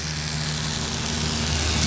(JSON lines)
{"label": "anthrophony, boat engine", "recorder": "SoundTrap 500"}